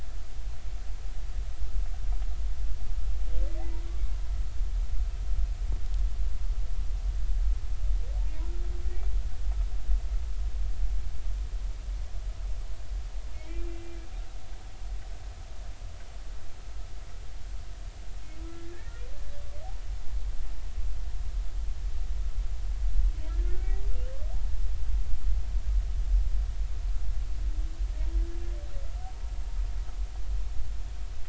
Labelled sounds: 13.3	13.9	humpback whale, 2.1 to 2.8 kHz
18.5	18.9	humpback whale, 1.6 to 1.9 kHz
23.4	23.7	humpback whale, 1.4 to 1.5 kHz

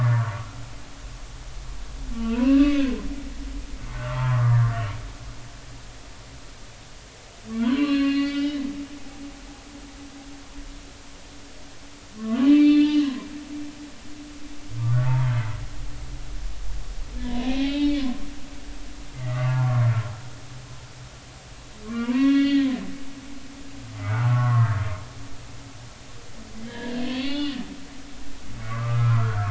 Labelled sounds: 2.2	3.0	humpback whale, 1.3 to 2.9 kHz
3.9	4.6	humpback whale, 0.86 to 1.6 kHz
7.6	8.6	humpback whale, 0.90 to 5.4 kHz
12.2	13.3	humpback whale, 0.96 to 4.5 kHz
14.8	15.5	humpback whale, 0.83 to 2.2 kHz
17.2	18.1	humpback whale, 0.80 to 4.4 kHz
19.1	19.9	humpback whale, 0.86 to 2.1 kHz
21.8	22.7	humpback whale, 0.90 to 4.3 kHz
24.0	24.8	humpback whale, 0.80 to 1.5 kHz
26.6	27.6	humpback whale, 1.4 to 5.0 kHz
28.7	29.4	humpback whale, 0.99 to 1.7 kHz

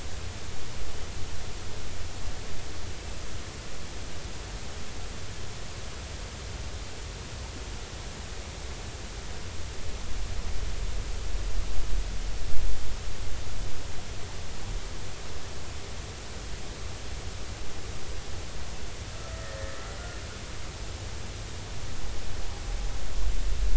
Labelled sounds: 19.1	19.4	humpback whale, 1.2 to 1.4 kHz

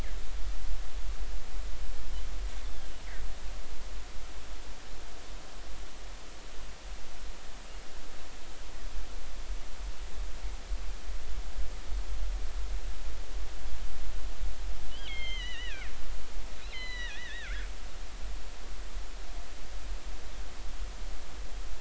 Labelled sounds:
14.9	17.7	killer whale, northern resident, G clan, 1.3 to 6.4 kHz

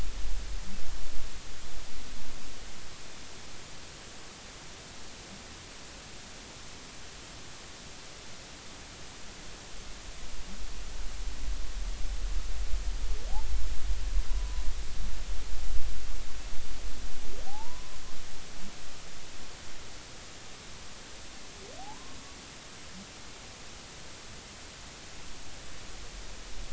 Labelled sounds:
14.3	14.6	humpback whale, 0.93 to 1.0 kHz
17.5	17.9	humpback whale, 0.80 to 1.1 kHz
21.8	22.2	humpback whale, 0.80 to 1.1 kHz

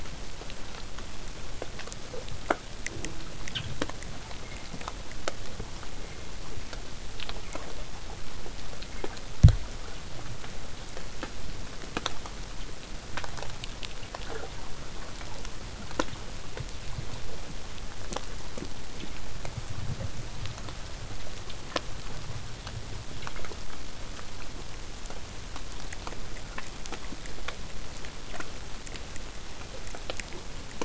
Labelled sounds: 2.9	3.4	killer whale, southern resident, J pod, call S04, 0.12 to 1.4 kHz

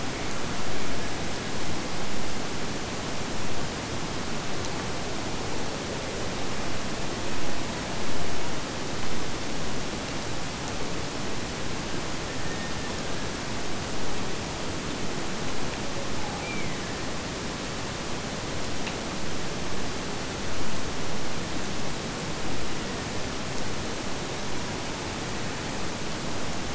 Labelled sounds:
16.3	17.2	killer whale, Bigg's (transient), Gulf of Alaska transient, 1.5 to 2.4 kHz

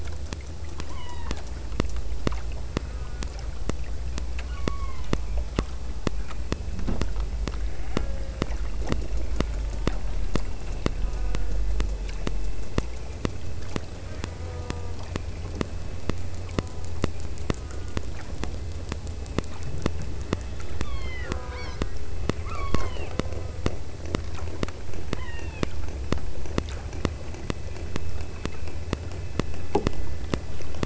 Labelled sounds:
0.9	1.6	killer whale, southern Alaska resident, 0.57 to 5.0 kHz
4.5	5.3	killer whale, southern Alaska resident, 0.84 to 4.6 kHz
7.9	8.8	killer whale, southern Alaska resident, 0.41 to 2.9 kHz
11.1	11.8	killer whale, southern Alaska resident, 0.30 to 1.7 kHz
14.4	15.1	killer whale, southern Alaska resident, 0.27 to 1.5 kHz
16.7	17.1	killer whale, southern Alaska resident, 0.59 to 1.6 kHz
17.7	18.1	killer whale, southern Alaska resident, 0.98 to 1.9 kHz
20.5	22.1	killer whale, southern Alaska resident, 0.32 to 6.2 kHz
22.5	23.7	killer whale, southern Alaska resident, 0.78 to 5.6 kHz
25.3	25.8	killer whale, southern Alaska resident, 0.73 to 3.9 kHz

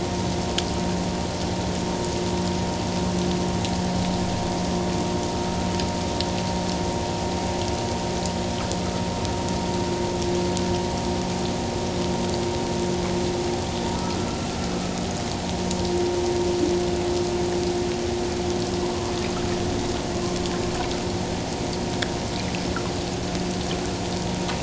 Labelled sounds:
13.9	14.4	humpback whale, 1.2 to 1.4 kHz

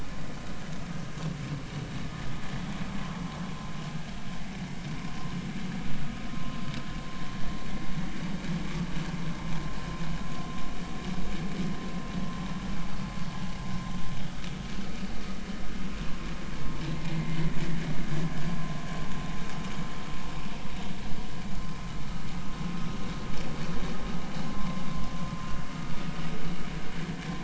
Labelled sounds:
7.3	7.6	vessel noise, 0.99 to 1.1 kHz
14.3	14.5	vessel noise, 1.2 to 1.3 kHz
17.1	17.4	vessel noise, 1.9 to 2.1 kHz

